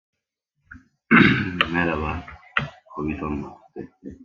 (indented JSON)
{
  "expert_labels": [
    {
      "quality": "no cough present",
      "cough_type": "unknown",
      "dyspnea": false,
      "wheezing": false,
      "stridor": false,
      "choking": false,
      "congestion": false,
      "nothing": true,
      "diagnosis": "healthy cough",
      "severity": "unknown"
    }
  ],
  "age": 24,
  "gender": "male",
  "respiratory_condition": true,
  "fever_muscle_pain": false,
  "status": "COVID-19"
}